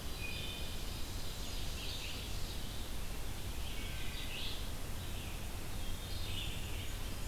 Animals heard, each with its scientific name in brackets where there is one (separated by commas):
Red-eyed Vireo (Vireo olivaceus), Wood Thrush (Hylocichla mustelina), Ovenbird (Seiurus aurocapilla)